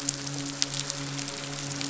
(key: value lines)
label: biophony, midshipman
recorder: SoundTrap 500